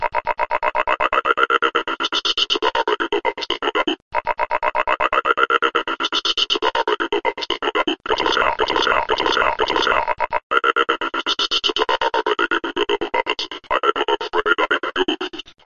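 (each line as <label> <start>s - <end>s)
Repeated robotic sounds. 0.0s - 8.1s
A robotic stuttering sound in a fast rhythmic pattern. 8.0s - 10.2s
An indescribable robotic stutter occurs periodically. 10.2s - 15.6s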